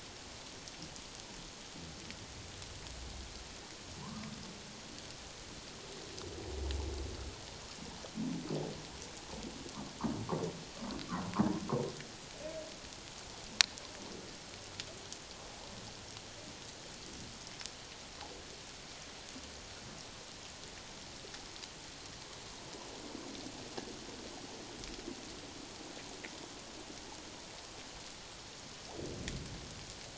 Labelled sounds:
4.0	4.3	humpback whale, 0.91 to 1.3 kHz

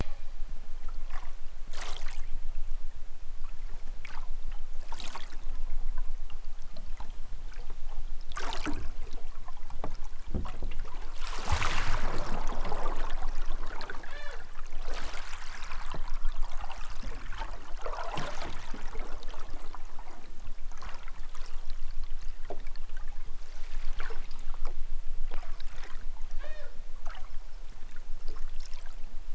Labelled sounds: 14.0	14.4	killer whale, southern Alaska resident, 0.23 to 8.0 kHz
26.2	26.8	killer whale, southern Alaska resident, 0.23 to 6.3 kHz

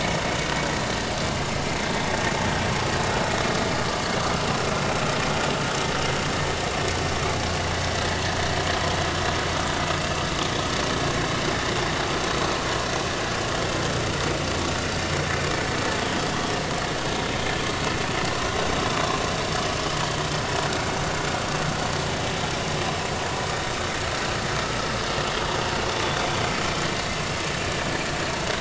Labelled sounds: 20.3	20.5	vessel noise, 5.1 to 5.3 kHz

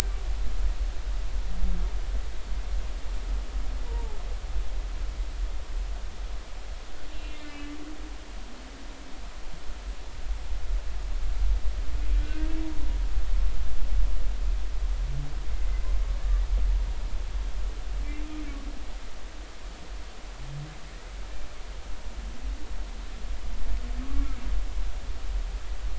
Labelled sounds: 3.8	4.2	humpback whale, 0.80 to 1.0 kHz
7.1	7.7	humpback whale, 2.0 to 2.8 kHz
12.2	12.5	humpback whale, 1.5 to 1.6 kHz
16.2	16.4	humpback whale, 1.7 to 1.8 kHz
24.0	24.3	humpback whale, 1.1 to 1.2 kHz

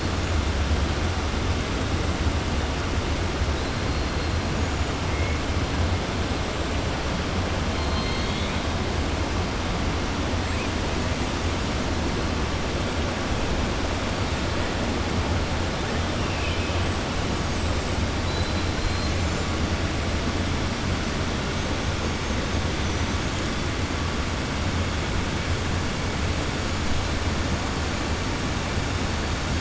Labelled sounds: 7.8	8.6	killer whale, 2.2 to 4.4 kHz
16.2	16.8	killer whale, 2.3 to 3.8 kHz
18.2	18.7	killer whale, 3.3 to 4.9 kHz

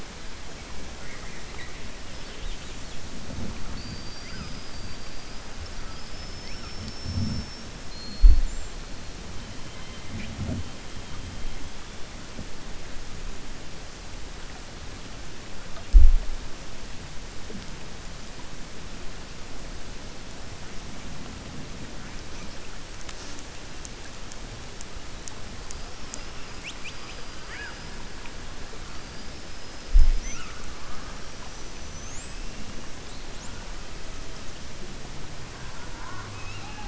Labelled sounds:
1.0	1.7	killer whale, 1.2 to 4.0 kHz
7.8	8.4	killer whale, 4.1 to 4.4 kHz

